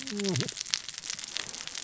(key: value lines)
label: biophony, cascading saw
recorder: SoundTrap 600 or HydroMoth